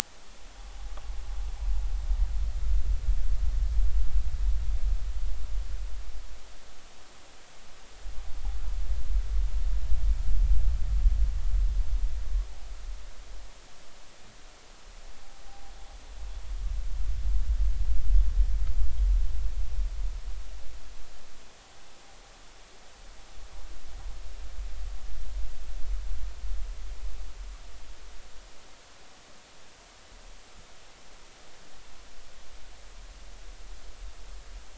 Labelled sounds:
15.5	15.7	noise likely from the mooring, 0.80 to 0.86 kHz

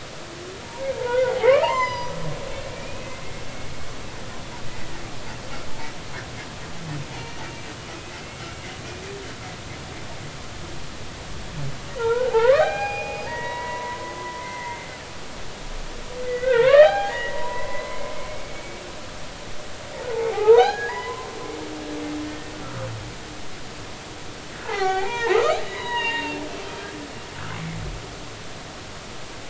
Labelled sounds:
0.6	1.3	humpback whale, 0.86 to 1.6 kHz
1.6	3.2	humpback whale, 0.80 to 7.3 kHz
7.1	7.4	humpback whale, 2.7 to 2.9 kHz
11.9	15.0	humpback whale, 0.80 to 5.0 kHz
16.2	18.8	humpback whale, 0.80 to 4.1 kHz
20.1	21.3	humpback whale, 0.80 to 4.2 kHz
22.3	22.6	humpback whale, 1.8 to 1.9 kHz
24.7	27.8	humpback whale, 0.80 to 6.8 kHz

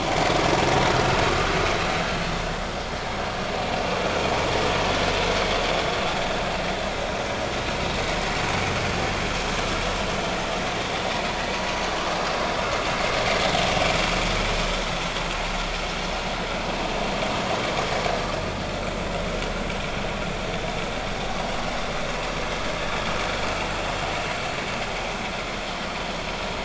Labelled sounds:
0.9	1.2	vessel noise, 1.2 to 1.5 kHz

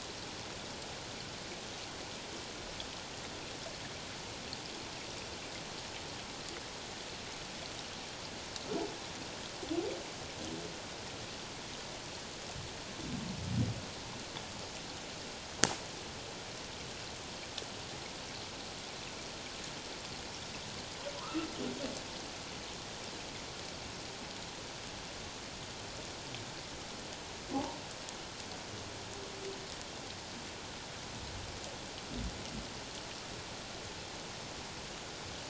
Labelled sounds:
21.2	21.5	humpback whale, 0.94 to 1.4 kHz

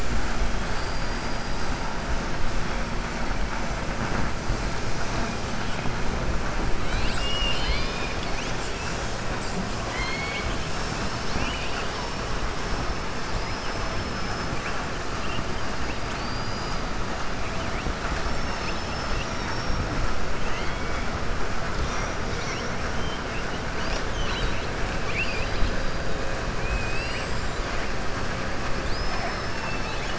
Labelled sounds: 0.6	1.6	killer whale, southern resident, 3.9 to 5.5 kHz
9.8	10.5	killer whale, southern resident, 1.0 to 4.5 kHz
13.3	14.5	killer whale, southern resident, 4.4 to 5.9 kHz
16.0	16.8	killer whale, southern resident, 3.9 to 5.0 kHz
24.9	25.8	killer whale, southern resident, 2.1 to 4.9 kHz
28.8	30.1	killer whale, southern resident, 2.4 to 6.8 kHz

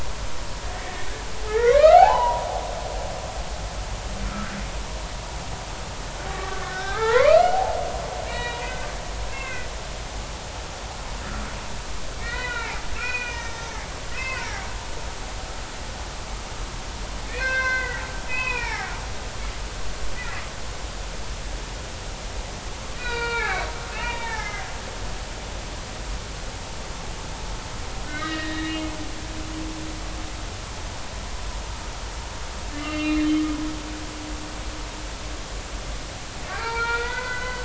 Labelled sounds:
0.7	2.5	humpback whale, 0.80 to 3.1 kHz
4.2	4.5	humpback whale, 1.2 to 1.4 kHz
6.3	7.8	humpback whale, 0.80 to 2.7 kHz
8.3	8.9	humpback whale, 0.93 to 3.9 kHz
9.3	9.7	humpback whale, 1.4 to 2.8 kHz
12.2	14.4	humpback whale, 0.80 to 6.1 kHz
17.2	18.9	humpback whale, 0.80 to 5.8 kHz
23.0	24.7	humpback whale, 0.80 to 4.9 kHz
25.1	25.4	humpback whale, 3.5 to 3.7 kHz
28.0	28.8	humpback whale, 1.2 to 4.1 kHz
32.7	33.4	humpback whale, 1.1 to 4.0 kHz
36.5	37.6	humpback whale, 0.80 to 4.8 kHz

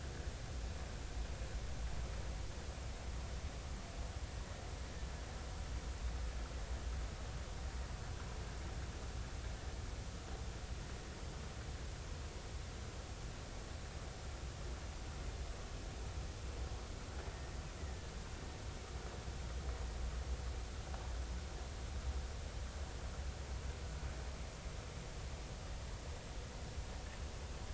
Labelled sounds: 17.8	18.1	killer whale, Bigg's (transient), 1.7 to 2.0 kHz

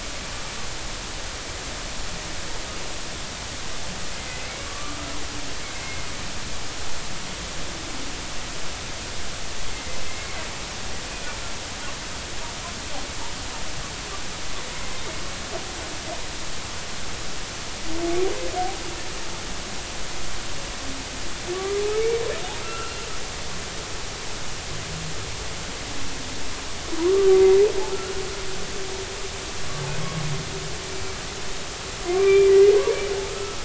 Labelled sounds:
4.2	5.0	humpback whale, 1.1 to 2.2 kHz
9.7	10.4	humpback whale, 2.0 to 2.2 kHz
21.5	22.2	humpback whale, 1.1 to 2.4 kHz
22.6	22.9	humpback whale, 1.3 to 1.6 kHz
32.1	33.6	humpback whale, 1.1 to 2.4 kHz

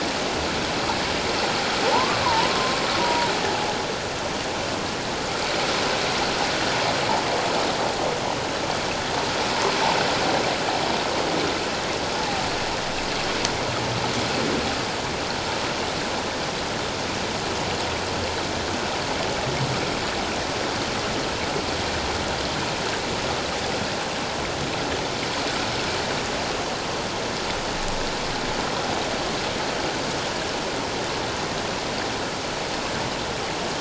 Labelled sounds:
1.9	3.3	humpback whale, 0.78 to 1.2 kHz

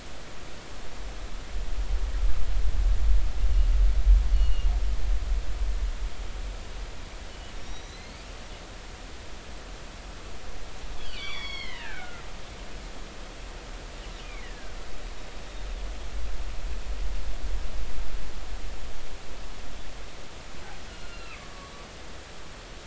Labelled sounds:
4.3	4.7	killer whale, northern resident, G clan, 2.8 to 4.5 kHz
7.5	8.2	killer whale, northern resident, G clan, 3.7 to 5.8 kHz
11.0	12.2	killer whale, northern resident, G clan, 0.80 to 5.9 kHz
14.2	14.8	killer whale, northern resident, G clan, 1.4 to 2.5 kHz
21.0	21.7	killer whale, northern resident, G clan, GG subclan, call N44, 1.1 to 4.3 kHz

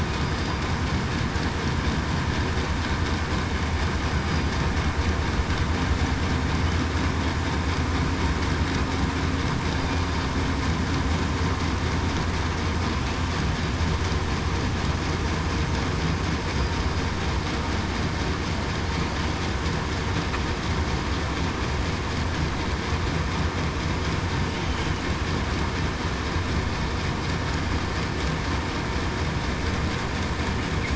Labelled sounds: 4.2	4.5	killer whale, southern resident, 4.8 to 4.9 kHz

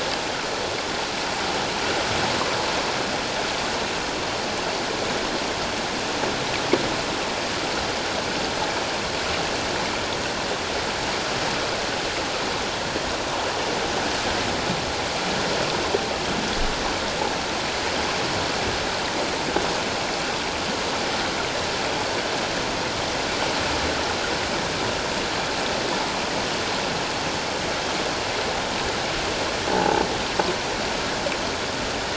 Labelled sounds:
29.7	30.0	croaking sound likely from a nearby submerged object, 0.78 to 0.94 kHz

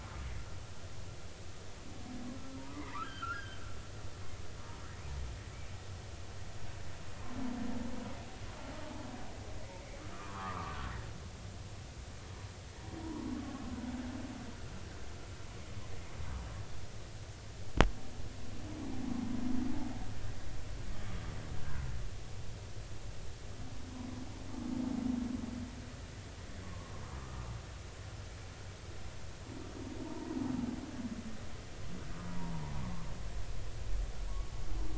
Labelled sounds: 2.6	3.6	humpback whale, 0.86 to 3.3 kHz
10.1	10.8	humpback whale, 0.96 to 1.4 kHz
13.0	13.3	humpback whale, 0.86 to 1.1 kHz
26.6	26.9	humpback whale, 1.0 to 1.2 kHz
30.0	30.4	humpback whale, 0.83 to 1.1 kHz
32.2	32.5	humpback whale, 0.86 to 1.1 kHz
32.8	33.1	humpback whale, 1.0 to 1.2 kHz

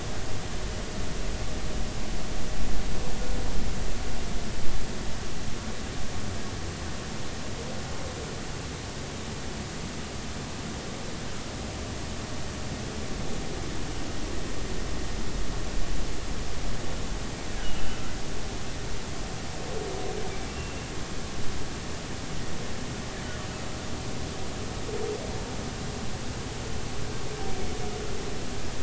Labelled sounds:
17.8	18.1	humpback whale, 1.3 to 1.6 kHz
20.5	20.9	humpback whale, 2.7 to 2.8 kHz

